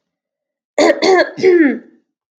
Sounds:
Throat clearing